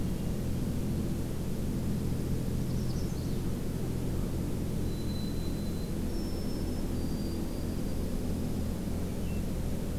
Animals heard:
White-throated Sparrow (Zonotrichia albicollis), American Crow (Corvus brachyrhynchos), Dark-eyed Junco (Junco hyemalis), Magnolia Warbler (Setophaga magnolia), Hermit Thrush (Catharus guttatus)

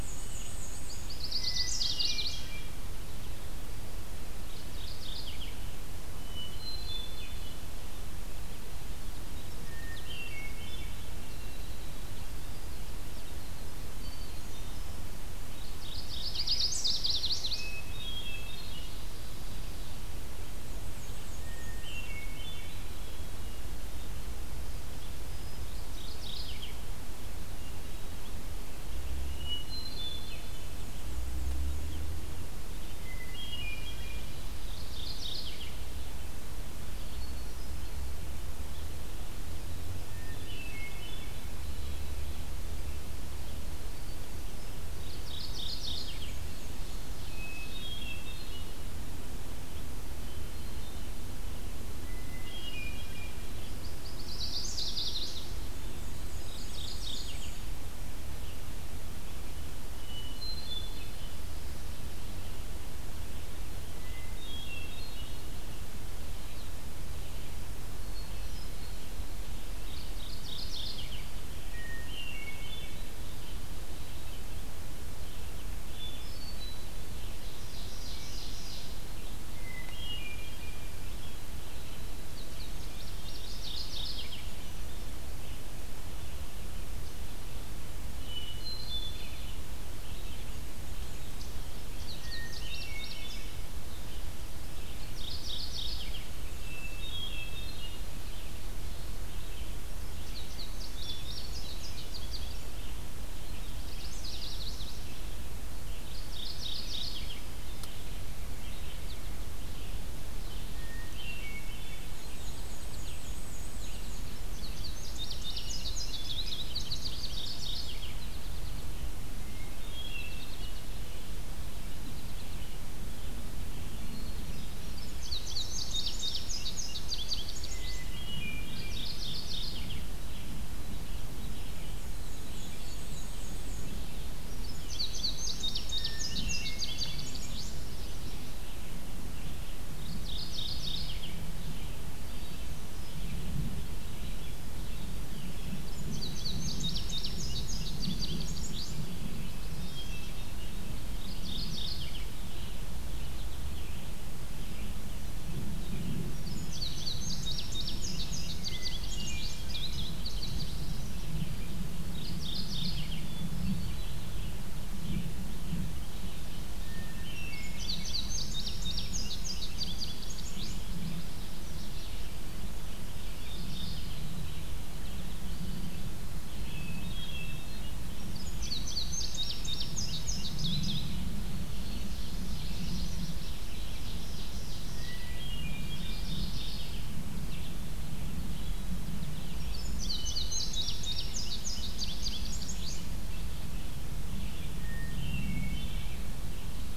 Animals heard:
Black-and-white Warbler (Mniotilta varia), Mourning Warbler (Geothlypis philadelphia), Chestnut-sided Warbler (Setophaga pensylvanica), Ovenbird (Seiurus aurocapilla), Red-eyed Vireo (Vireo olivaceus), Hermit Thrush (Catharus guttatus), Indigo Bunting (Passerina cyanea), American Goldfinch (Spinus tristis), Winter Wren (Troglodytes hiemalis)

